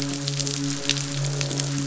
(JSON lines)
{"label": "biophony, midshipman", "recorder": "SoundTrap 500"}
{"label": "biophony, croak", "recorder": "SoundTrap 500"}